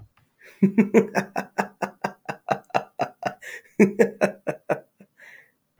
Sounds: Laughter